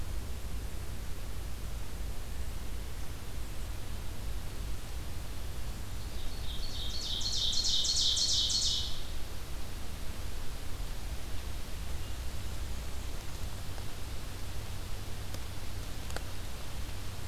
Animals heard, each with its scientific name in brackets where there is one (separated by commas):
Ovenbird (Seiurus aurocapilla)